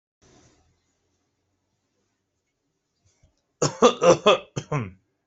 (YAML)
expert_labels:
- quality: good
  cough_type: dry
  dyspnea: false
  wheezing: false
  stridor: false
  choking: false
  congestion: false
  nothing: true
  diagnosis: upper respiratory tract infection
  severity: unknown
age: 35
gender: male
respiratory_condition: false
fever_muscle_pain: false
status: healthy